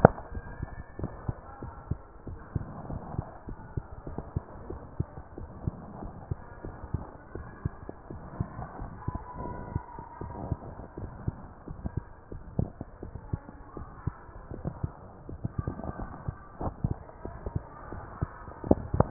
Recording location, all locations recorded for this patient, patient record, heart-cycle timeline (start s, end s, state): mitral valve (MV)
aortic valve (AV)+pulmonary valve (PV)+tricuspid valve (TV)+mitral valve (MV)
#Age: Child
#Sex: Female
#Height: 121.0 cm
#Weight: 26.8 kg
#Pregnancy status: False
#Murmur: Absent
#Murmur locations: nan
#Most audible location: nan
#Systolic murmur timing: nan
#Systolic murmur shape: nan
#Systolic murmur grading: nan
#Systolic murmur pitch: nan
#Systolic murmur quality: nan
#Diastolic murmur timing: nan
#Diastolic murmur shape: nan
#Diastolic murmur grading: nan
#Diastolic murmur pitch: nan
#Diastolic murmur quality: nan
#Outcome: Abnormal
#Campaign: 2014 screening campaign
0.00	0.89	unannotated
0.89	1.00	diastole
1.00	1.12	S1
1.12	1.26	systole
1.26	1.36	S2
1.36	1.62	diastole
1.62	1.74	S1
1.74	1.88	systole
1.88	2.00	S2
2.00	2.28	diastole
2.28	2.38	S1
2.38	2.54	systole
2.54	2.64	S2
2.64	2.90	diastole
2.90	3.02	S1
3.02	3.16	systole
3.16	3.26	S2
3.26	3.48	diastole
3.48	3.58	S1
3.58	3.76	systole
3.76	3.84	S2
3.84	4.08	diastole
4.08	4.22	S1
4.22	4.34	systole
4.34	4.44	S2
4.44	4.68	diastole
4.68	4.80	S1
4.80	4.98	systole
4.98	5.08	S2
5.08	5.38	diastole
5.38	5.50	S1
5.50	5.64	systole
5.64	5.74	S2
5.74	6.02	diastole
6.02	6.14	S1
6.14	6.30	systole
6.30	6.38	S2
6.38	6.64	diastole
6.64	6.76	S1
6.76	6.92	systole
6.92	7.04	S2
7.04	7.36	diastole
7.36	7.48	S1
7.48	7.64	systole
7.64	7.74	S2
7.74	8.12	diastole
8.12	8.22	S1
8.22	8.38	systole
8.38	8.48	S2
8.48	8.80	diastole
8.80	8.90	S1
8.90	9.08	systole
9.08	9.18	S2
9.18	9.44	diastole
9.44	9.56	S1
9.56	9.72	systole
9.72	9.82	S2
9.82	10.22	diastole
10.22	10.34	S1
10.34	10.46	systole
10.46	10.56	S2
10.56	11.00	diastole
11.00	11.12	S1
11.12	11.26	systole
11.26	11.36	S2
11.36	11.68	diastole
11.68	19.10	unannotated